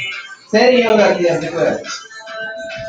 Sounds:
Laughter